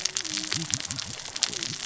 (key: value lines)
label: biophony, cascading saw
recorder: SoundTrap 600 or HydroMoth